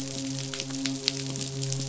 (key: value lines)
label: biophony, midshipman
recorder: SoundTrap 500